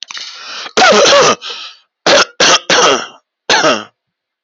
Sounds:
Cough